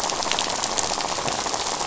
{"label": "biophony, rattle", "recorder": "SoundTrap 500"}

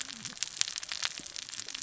{"label": "biophony, cascading saw", "recorder": "SoundTrap 600 or HydroMoth"}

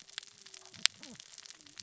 {"label": "biophony, cascading saw", "recorder": "SoundTrap 600 or HydroMoth"}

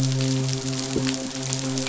{"label": "biophony, midshipman", "recorder": "SoundTrap 500"}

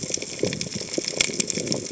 {"label": "biophony", "recorder": "HydroMoth"}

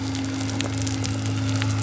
{"label": "biophony", "recorder": "SoundTrap 300"}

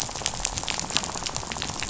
{"label": "biophony, rattle", "recorder": "SoundTrap 500"}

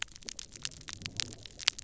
{"label": "biophony", "recorder": "SoundTrap 300"}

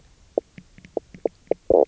{"label": "biophony, knock croak", "recorder": "SoundTrap 300"}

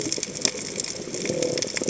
{"label": "biophony", "recorder": "HydroMoth"}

